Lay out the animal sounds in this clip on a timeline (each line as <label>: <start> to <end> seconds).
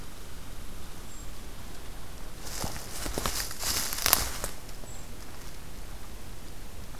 Brown Creeper (Certhia americana): 0.9 to 1.4 seconds
Brown Creeper (Certhia americana): 4.8 to 5.1 seconds